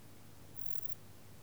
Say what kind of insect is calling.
orthopteran